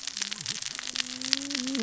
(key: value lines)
label: biophony, cascading saw
recorder: SoundTrap 600 or HydroMoth